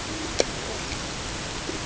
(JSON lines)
{"label": "ambient", "recorder": "HydroMoth"}